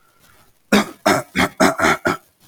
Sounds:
Throat clearing